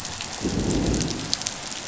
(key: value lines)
label: biophony, growl
recorder: SoundTrap 500